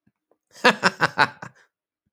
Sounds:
Laughter